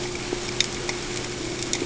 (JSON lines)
{"label": "ambient", "recorder": "HydroMoth"}